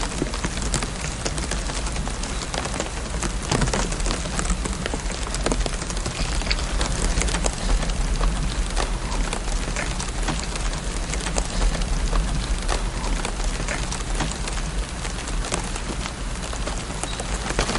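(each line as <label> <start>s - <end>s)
A small campfire crackles with detailed, textured flame sounds. 0.0s - 17.8s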